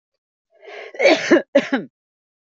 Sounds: Cough